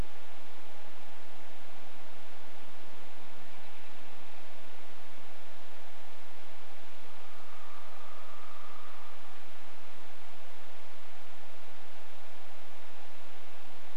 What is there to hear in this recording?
American Robin call, woodpecker drumming